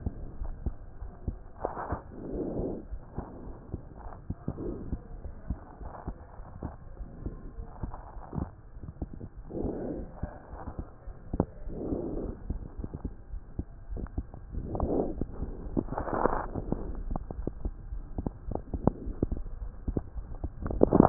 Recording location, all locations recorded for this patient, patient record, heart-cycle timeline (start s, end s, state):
aortic valve (AV)
aortic valve (AV)+pulmonary valve (PV)+tricuspid valve (TV)+mitral valve (MV)
#Age: Child
#Sex: Female
#Height: 100.0 cm
#Weight: 19.8 kg
#Pregnancy status: False
#Murmur: Absent
#Murmur locations: nan
#Most audible location: nan
#Systolic murmur timing: nan
#Systolic murmur shape: nan
#Systolic murmur grading: nan
#Systolic murmur pitch: nan
#Systolic murmur quality: nan
#Diastolic murmur timing: nan
#Diastolic murmur shape: nan
#Diastolic murmur grading: nan
#Diastolic murmur pitch: nan
#Diastolic murmur quality: nan
#Outcome: Normal
#Campaign: 2015 screening campaign
0.00	4.98	unannotated
4.98	5.22	diastole
5.22	5.31	S1
5.31	5.48	systole
5.48	5.56	S2
5.56	5.80	diastole
5.80	5.90	S1
5.90	6.04	systole
6.04	6.13	S2
6.13	6.37	diastole
6.37	6.43	S1
6.43	6.61	systole
6.61	6.69	S2
6.69	6.95	diastole
6.95	7.09	S1
7.09	7.24	systole
7.24	7.31	S2
7.31	7.56	diastole
7.56	7.63	S1
7.63	7.80	systole
7.80	7.89	S2
7.89	8.14	diastole
8.14	8.22	S1
8.22	8.39	systole
8.39	8.47	S2
8.47	8.79	diastole
8.79	8.91	S1
8.91	9.00	systole
9.00	9.07	S2
9.07	9.37	diastole
9.37	9.48	S1
9.48	9.61	systole
9.61	9.69	S2
9.69	9.97	diastole
9.97	10.07	S1
10.07	10.21	systole
10.21	10.28	S2
10.28	10.53	diastole
10.53	10.62	S1
10.62	10.78	systole
10.78	10.85	S2
10.85	11.05	diastole
11.05	11.14	S1
11.14	11.30	systole
11.30	11.39	S2
11.39	11.65	diastole
11.65	11.75	S1
11.75	11.89	systole
11.89	11.98	S2
11.98	12.12	diastole
12.12	12.23	S1
12.23	12.46	systole
12.46	12.55	S2
12.55	12.76	diastole
12.76	12.85	S1
12.85	13.02	systole
13.02	13.10	S2
13.10	21.09	unannotated